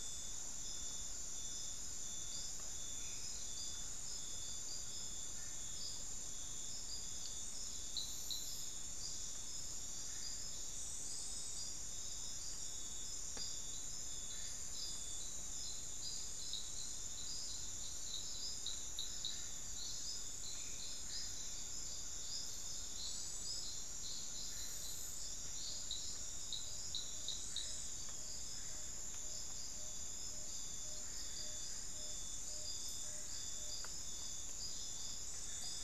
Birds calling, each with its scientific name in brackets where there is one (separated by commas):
Tawny-bellied Screech-Owl (Megascops watsonii), Ferruginous Pygmy-Owl (Glaucidium brasilianum)